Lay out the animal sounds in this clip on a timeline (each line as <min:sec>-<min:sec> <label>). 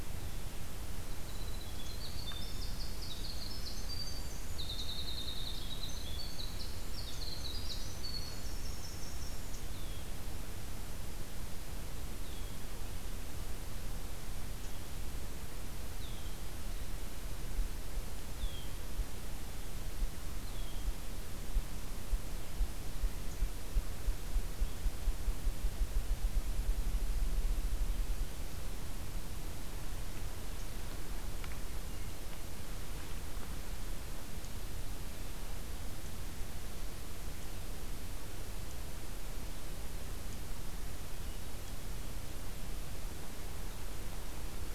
0:01.2-0:10.2 Winter Wren (Troglodytes hiemalis)